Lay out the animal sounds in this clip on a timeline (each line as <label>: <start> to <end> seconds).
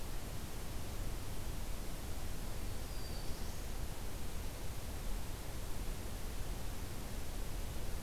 Black-throated Blue Warbler (Setophaga caerulescens): 2.5 to 3.8 seconds